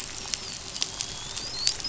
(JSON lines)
{"label": "biophony, dolphin", "recorder": "SoundTrap 500"}